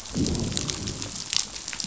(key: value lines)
label: biophony, growl
recorder: SoundTrap 500